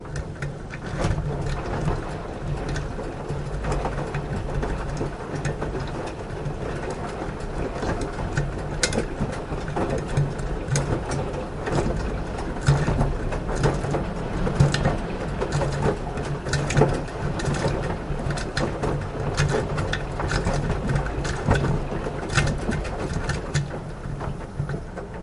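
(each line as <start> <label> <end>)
0.0 Water sloshing inside a washing machine. 25.2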